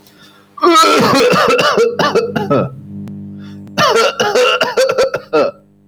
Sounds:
Cough